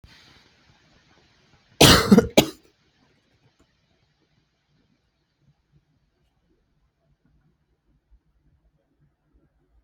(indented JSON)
{
  "expert_labels": [
    {
      "quality": "good",
      "cough_type": "wet",
      "dyspnea": false,
      "wheezing": false,
      "stridor": false,
      "choking": false,
      "congestion": false,
      "nothing": true,
      "diagnosis": "healthy cough",
      "severity": "pseudocough/healthy cough"
    }
  ]
}